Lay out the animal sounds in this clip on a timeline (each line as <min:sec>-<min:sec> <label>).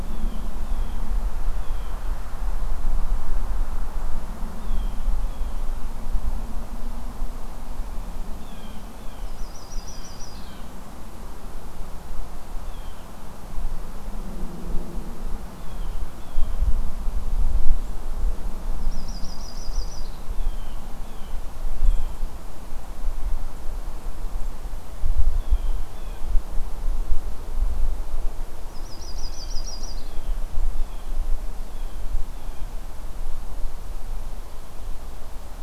0:00.0-0:02.0 Blue Jay (Cyanocitta cristata)
0:04.5-0:05.7 Blue Jay (Cyanocitta cristata)
0:08.3-0:09.5 Blue Jay (Cyanocitta cristata)
0:09.2-0:10.6 Yellow-rumped Warbler (Setophaga coronata)
0:09.8-0:10.8 Blue Jay (Cyanocitta cristata)
0:12.6-0:13.1 Blue Jay (Cyanocitta cristata)
0:15.5-0:16.7 Blue Jay (Cyanocitta cristata)
0:18.8-0:20.2 Yellow-rumped Warbler (Setophaga coronata)
0:20.3-0:22.2 Blue Jay (Cyanocitta cristata)
0:25.3-0:26.3 Blue Jay (Cyanocitta cristata)
0:28.6-0:30.2 Yellow-rumped Warbler (Setophaga coronata)
0:29.3-0:32.8 Blue Jay (Cyanocitta cristata)